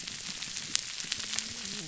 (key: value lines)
label: biophony, whup
recorder: SoundTrap 300